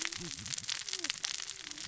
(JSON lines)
{"label": "biophony, cascading saw", "recorder": "SoundTrap 600 or HydroMoth"}